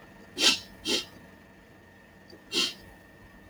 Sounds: Sniff